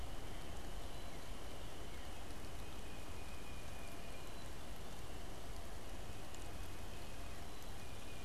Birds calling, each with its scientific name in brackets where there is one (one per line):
Tufted Titmouse (Baeolophus bicolor)